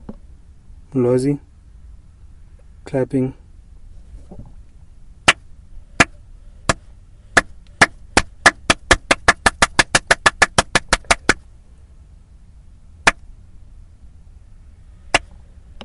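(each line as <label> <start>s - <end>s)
A man is speaking. 0.8s - 1.5s
A man is speaking. 2.8s - 3.3s
Clapping sounds. 5.2s - 11.4s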